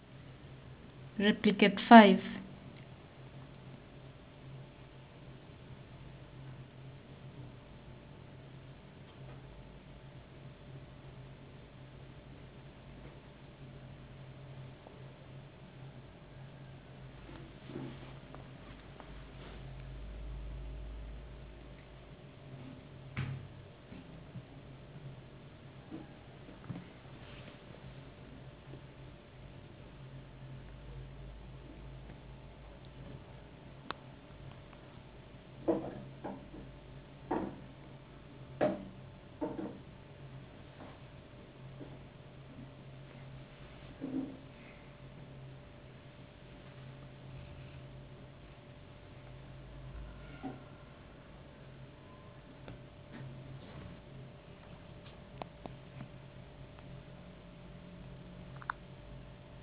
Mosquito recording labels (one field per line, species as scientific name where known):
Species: no mosquito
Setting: insect culture